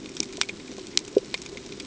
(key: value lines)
label: ambient
recorder: HydroMoth